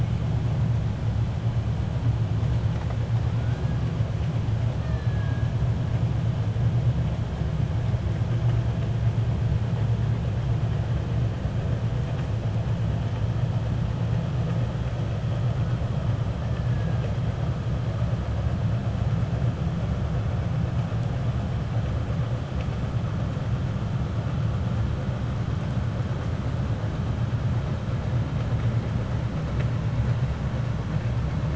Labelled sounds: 4.7	5.4	killer whale, 1.1 to 2.7 kHz
16.4	17.1	killer whale, 1.5 to 2.6 kHz

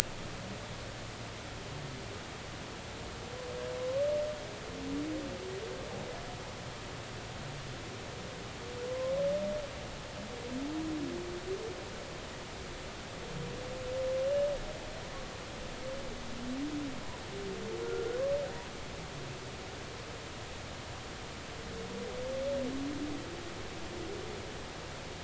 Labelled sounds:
8.9	9.1	humpback whale, 0.99 to 1.1 kHz
17.8	18.2	humpback whale, 1.3 to 1.5 kHz

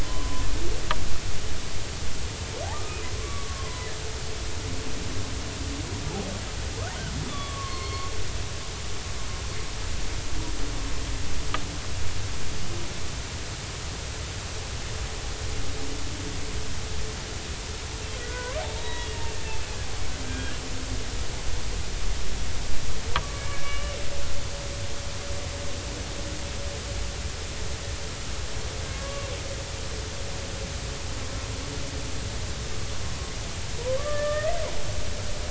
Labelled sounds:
0.0	0.4	humpback whale, 0.96 to 1.1 kHz
2.7	3.9	humpback whale, 0.96 to 2.0 kHz
7.3	8.1	humpback whale, 0.99 to 4.5 kHz
18.1	19.1	humpback whale, 0.86 to 3.9 kHz
20.2	20.6	humpback whale, 1.5 to 2.5 kHz
23.4	23.9	humpback whale, 1.1 to 2.9 kHz
28.8	29.3	humpback whale, 1.1 to 2.8 kHz
33.8	34.6	humpback whale, 0.93 to 2.1 kHz

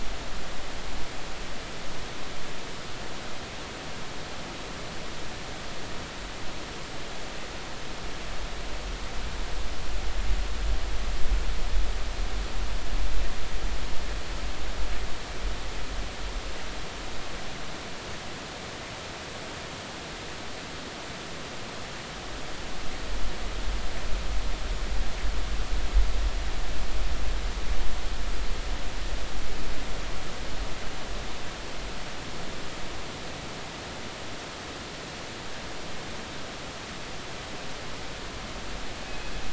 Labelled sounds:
39.1	39.3	killer whale, northern resident, G clan, call N24ii, 2.5 to 2.6 kHz

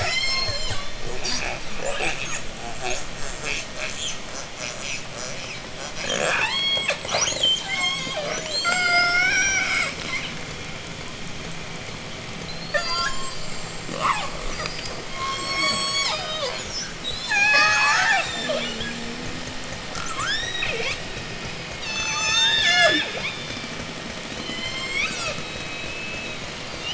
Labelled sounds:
0.0	10.2	killer whale, J pod, 0.29 to 8.0 kHz
12.4	13.4	killer whale, J pod, 0.34 to 8.0 kHz
13.7	14.6	killer whale, J pod, 0.23 to 4.2 kHz
15.1	16.7	killer whale, J pod, call S03, 0.31 to 8.0 kHz
16.9	18.7	killer whale, J pod, 0.31 to 8.0 kHz
19.8	21.2	killer whale, J pod, 0.34 to 8.0 kHz
21.7	23.5	killer whale, J pod, 0.18 to 8.0 kHz
24.3	25.4	killer whale, J pod, call S01, 0.76 to 8.0 kHz

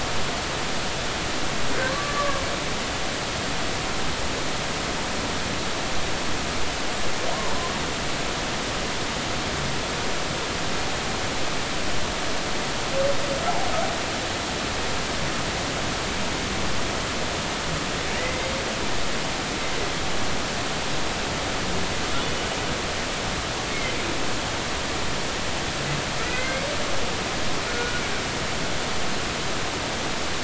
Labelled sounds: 1.8	2.4	humpback whale, 1.0 to 1.2 kHz
18.2	18.5	humpback whale, 1.9 to 2.1 kHz
26.2	26.6	humpback whale, 1.9 to 2.3 kHz
27.7	28.0	humpback whale, 1.4 to 1.5 kHz

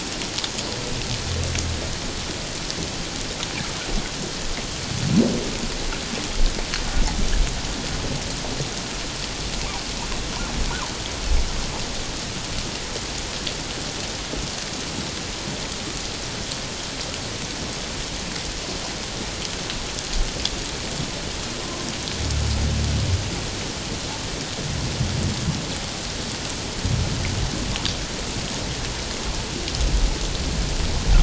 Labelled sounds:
21.6	21.9	humpback whale, 1.0 to 1.1 kHz

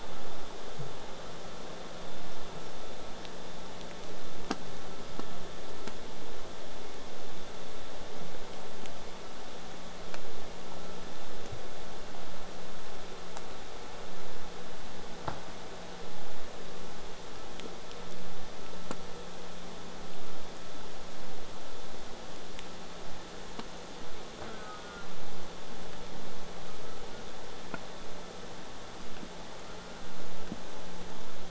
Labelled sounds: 0.0	5.0	vessel noise, 0 to 8.0 kHz
24.5	25.1	killer whale, southern resident, J pod, call S04, 0.58 to 1.7 kHz

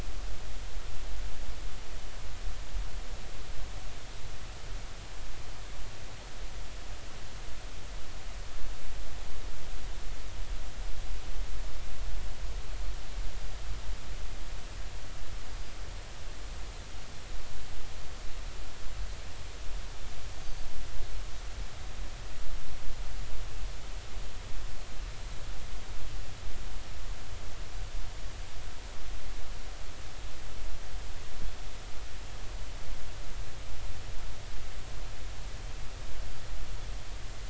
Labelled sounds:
20.3	20.7	Pacific white-sided dolphin, 6.1 to 6.5 kHz

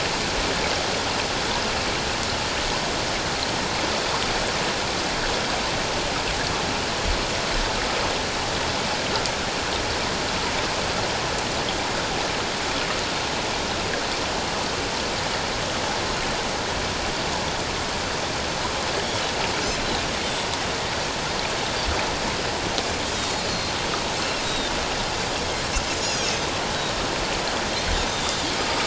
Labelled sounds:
23.5	23.8	Pacific white-sided dolphin, 4.1 to 4.4 kHz
24.4	24.7	Pacific white-sided dolphin, 3.5 to 3.9 kHz
25.9	26.3	Pacific white-sided dolphin, 6.3 to 7.0 kHz
28.1	28.4	Pacific white-sided dolphin, 3.5 to 3.7 kHz

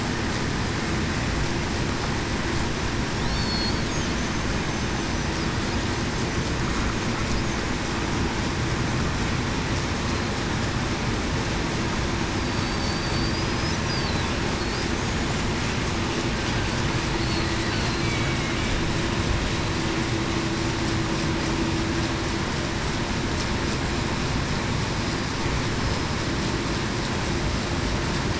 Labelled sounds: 3.3	3.7	killer whale, Bigg's (transient), 4.3 to 4.5 kHz
12.4	13.7	killer whale, Bigg's (transient), 4.5 to 5.3 kHz
18.0	18.4	killer whale, Bigg's (transient), 2.2 to 2.3 kHz
25.7	26.1	killer whale, Bigg's (transient), 5.1 to 5.2 kHz

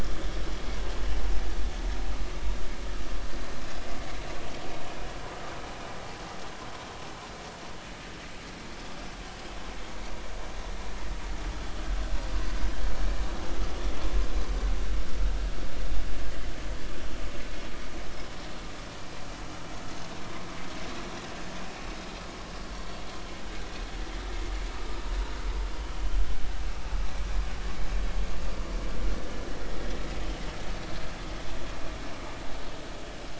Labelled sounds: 29.6	29.9	vessel noise, 1.8 to 2.0 kHz

